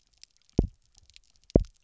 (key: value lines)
label: biophony, double pulse
recorder: SoundTrap 300